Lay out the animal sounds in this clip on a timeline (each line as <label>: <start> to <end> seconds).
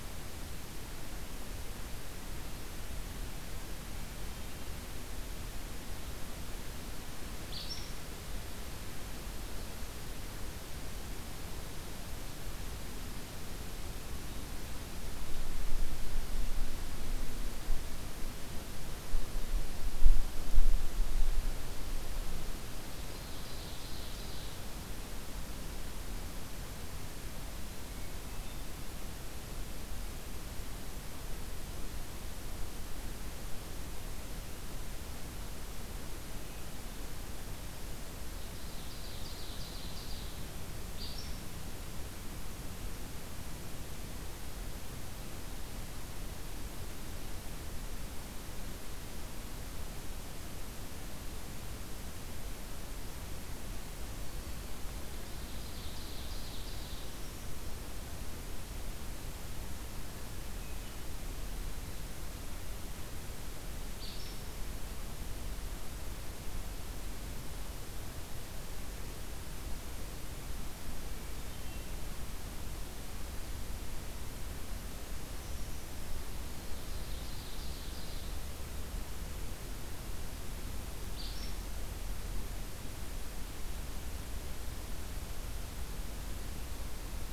Acadian Flycatcher (Empidonax virescens): 7.4 to 7.9 seconds
Ovenbird (Seiurus aurocapilla): 22.8 to 24.6 seconds
Ovenbird (Seiurus aurocapilla): 38.4 to 40.5 seconds
Acadian Flycatcher (Empidonax virescens): 41.0 to 41.4 seconds
Ovenbird (Seiurus aurocapilla): 55.2 to 57.2 seconds
Acadian Flycatcher (Empidonax virescens): 63.9 to 64.4 seconds
Brown Creeper (Certhia americana): 74.9 to 76.2 seconds
Ovenbird (Seiurus aurocapilla): 76.4 to 78.4 seconds
Acadian Flycatcher (Empidonax virescens): 81.1 to 81.6 seconds